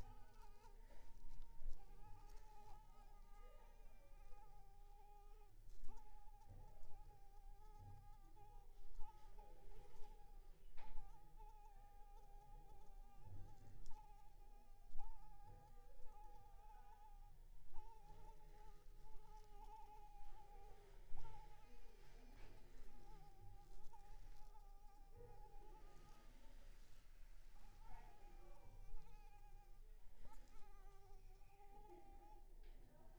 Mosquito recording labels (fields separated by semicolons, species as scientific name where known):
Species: Anopheles arabiensis; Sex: female; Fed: unfed; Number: one; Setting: cup